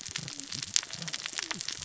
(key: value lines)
label: biophony, cascading saw
recorder: SoundTrap 600 or HydroMoth